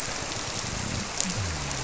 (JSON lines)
{"label": "biophony", "recorder": "SoundTrap 300"}